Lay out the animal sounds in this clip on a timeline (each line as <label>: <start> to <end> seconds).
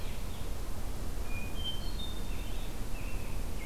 Blue-headed Vireo (Vireo solitarius): 0.0 to 3.7 seconds
Hermit Thrush (Catharus guttatus): 1.2 to 2.6 seconds
American Robin (Turdus migratorius): 2.2 to 3.7 seconds